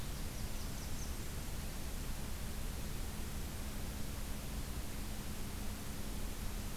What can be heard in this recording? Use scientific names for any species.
Setophaga fusca